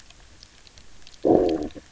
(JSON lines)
{"label": "biophony, low growl", "recorder": "SoundTrap 300"}